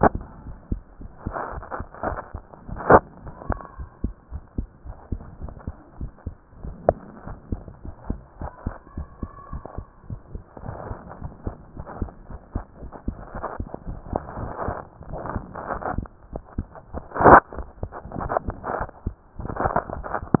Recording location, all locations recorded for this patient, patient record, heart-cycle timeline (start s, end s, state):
mitral valve (MV)
aortic valve (AV)+pulmonary valve (PV)+tricuspid valve (TV)+mitral valve (MV)
#Age: Child
#Sex: Male
#Height: 139.0 cm
#Weight: 32.5 kg
#Pregnancy status: False
#Murmur: Absent
#Murmur locations: nan
#Most audible location: nan
#Systolic murmur timing: nan
#Systolic murmur shape: nan
#Systolic murmur grading: nan
#Systolic murmur pitch: nan
#Systolic murmur quality: nan
#Diastolic murmur timing: nan
#Diastolic murmur shape: nan
#Diastolic murmur grading: nan
#Diastolic murmur pitch: nan
#Diastolic murmur quality: nan
#Outcome: Abnormal
#Campaign: 2015 screening campaign
0.00	3.75	unannotated
3.75	3.88	S1
3.88	4.02	systole
4.02	4.14	S2
4.14	4.30	diastole
4.30	4.42	S1
4.42	4.54	systole
4.54	4.68	S2
4.68	4.84	diastole
4.84	4.96	S1
4.96	5.08	systole
5.08	5.20	S2
5.20	5.38	diastole
5.38	5.52	S1
5.52	5.66	systole
5.66	5.76	S2
5.76	5.98	diastole
5.98	6.12	S1
6.12	6.26	systole
6.26	6.36	S2
6.36	6.60	diastole
6.60	6.74	S1
6.74	6.86	systole
6.86	7.02	S2
7.02	7.26	diastole
7.26	7.38	S1
7.38	7.50	systole
7.50	7.64	S2
7.64	7.84	diastole
7.84	7.94	S1
7.94	8.08	systole
8.08	8.22	S2
8.22	8.40	diastole
8.40	8.50	S1
8.50	8.62	systole
8.62	8.74	S2
8.74	8.96	diastole
8.96	9.08	S1
9.08	9.20	systole
9.20	9.29	S2
9.29	9.52	diastole
9.52	9.62	S1
9.62	9.76	systole
9.76	9.86	S2
9.86	10.09	diastole
10.09	10.20	S1
10.20	10.32	systole
10.32	10.44	S2
10.44	10.62	diastole
10.62	10.76	S1
10.76	10.88	systole
10.88	11.00	S2
11.00	11.22	diastole
11.22	11.32	S1
11.32	11.44	systole
11.44	11.58	S2
11.58	11.76	diastole
11.76	11.86	S1
11.86	12.00	systole
12.00	12.12	S2
12.12	12.30	diastole
12.30	12.40	S1
12.40	12.54	systole
12.54	12.64	S2
12.64	12.82	diastole
12.82	12.92	S1
12.92	13.06	systole
13.06	13.16	S2
13.16	13.34	diastole
13.34	13.46	S1
13.46	13.58	systole
13.58	13.70	S2
13.70	13.86	diastole
13.86	13.93	S1
13.93	20.40	unannotated